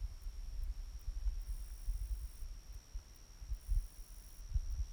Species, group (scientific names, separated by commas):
Conocephalus brevipennis, Orthoptera